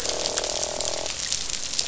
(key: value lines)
label: biophony, croak
recorder: SoundTrap 500